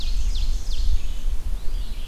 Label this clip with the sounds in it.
Ovenbird, Red-eyed Vireo, Eastern Wood-Pewee